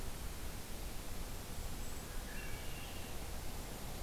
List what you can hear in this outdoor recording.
Golden-crowned Kinglet, Hermit Thrush